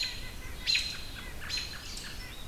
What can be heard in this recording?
American Robin, White-breasted Nuthatch